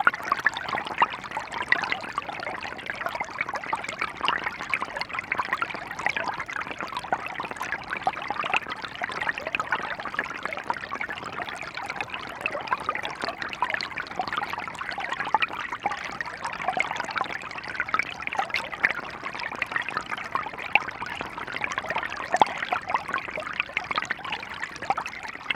Is a large amount of water actively moving?
yes